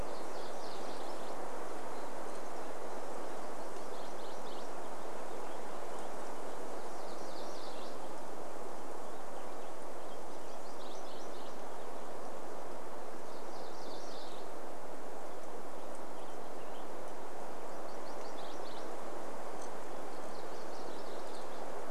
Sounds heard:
Purple Finch song, unidentified bird chip note, MacGillivray's Warbler song

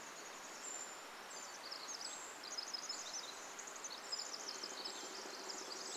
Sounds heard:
woodpecker drumming, Varied Thrush song, Pacific Wren song, Brown Creeper call

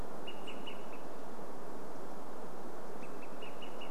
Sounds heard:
unidentified bird chip note, Olive-sided Flycatcher call

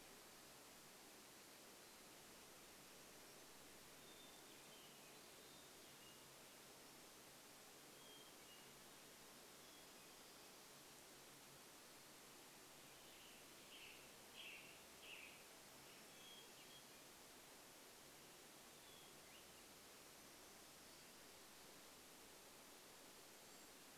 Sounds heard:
Western Tanager song, Hermit Thrush song, Swainson's Thrush song, unidentified sound

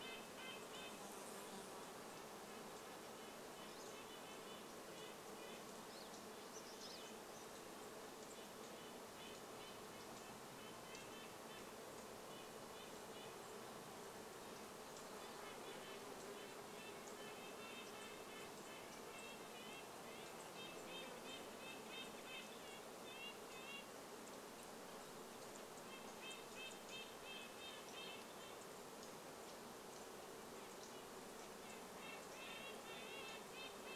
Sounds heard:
Red-breasted Nuthatch call, insect buzz, Red-breasted Nuthatch song, Pine Siskin call

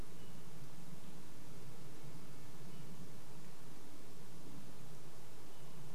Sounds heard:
airplane

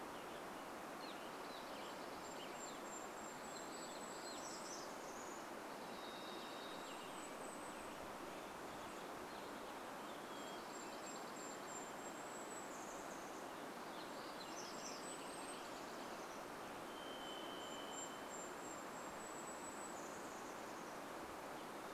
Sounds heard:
Dark-eyed Junco song, Hermit Thrush song, Varied Thrush song, Golden-crowned Kinglet song, warbler song, Western Tanager song, Evening Grosbeak call

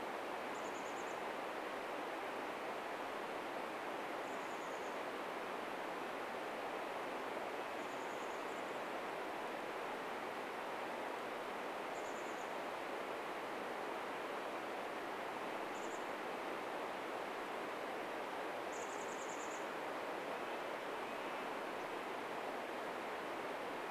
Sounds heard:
Chestnut-backed Chickadee call, Red-breasted Nuthatch song

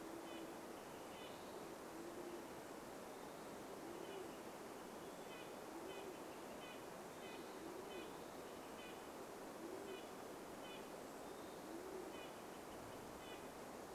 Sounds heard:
Red-breasted Nuthatch song, Band-tailed Pigeon call, Western Wood-Pewee song

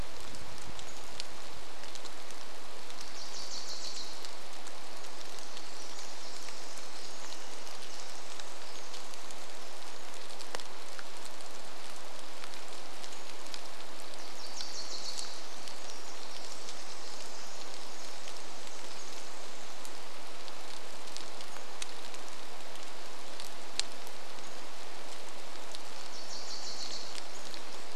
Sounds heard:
Varied Thrush song, Wilson's Warbler song, Pacific-slope Flycatcher call, rain, Pacific Wren song

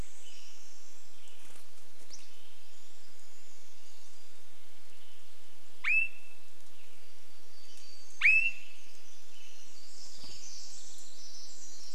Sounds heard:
Pacific-slope Flycatcher call, Swainson's Thrush call, warbler song, bird wingbeats, Western Tanager song, Pacific Wren song

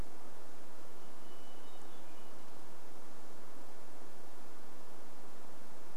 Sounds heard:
Varied Thrush song, Hermit Thrush song

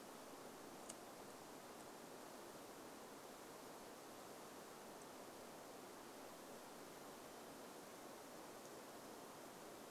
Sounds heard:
Varied Thrush song

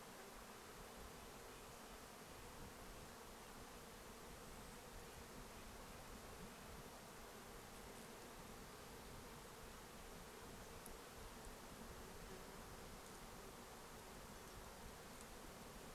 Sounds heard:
Red-breasted Nuthatch song, insect buzz, Golden-crowned Kinglet call, Evening Grosbeak call

